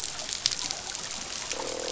{"label": "biophony, croak", "recorder": "SoundTrap 500"}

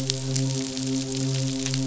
{"label": "biophony, midshipman", "recorder": "SoundTrap 500"}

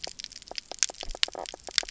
{"label": "biophony, knock croak", "recorder": "SoundTrap 300"}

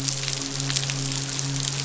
{"label": "biophony, midshipman", "recorder": "SoundTrap 500"}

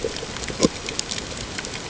{"label": "ambient", "recorder": "HydroMoth"}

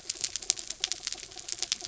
{"label": "anthrophony, mechanical", "recorder": "SoundTrap 300"}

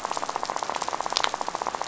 {"label": "biophony, rattle", "recorder": "SoundTrap 500"}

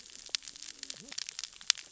{"label": "biophony, cascading saw", "recorder": "SoundTrap 600 or HydroMoth"}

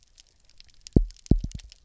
{"label": "biophony, double pulse", "recorder": "SoundTrap 300"}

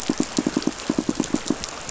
{"label": "biophony, pulse", "recorder": "SoundTrap 500"}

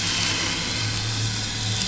{"label": "anthrophony, boat engine", "recorder": "SoundTrap 500"}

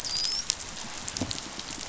{"label": "biophony, dolphin", "recorder": "SoundTrap 500"}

